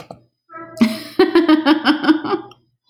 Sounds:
Laughter